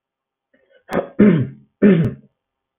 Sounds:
Throat clearing